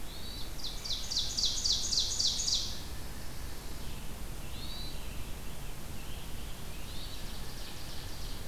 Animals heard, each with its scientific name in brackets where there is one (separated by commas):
American Robin (Turdus migratorius), Hermit Thrush (Catharus guttatus), Ovenbird (Seiurus aurocapilla)